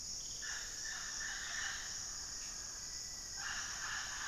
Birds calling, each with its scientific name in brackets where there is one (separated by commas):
Mealy Parrot (Amazona farinosa), Black-faced Antthrush (Formicarius analis)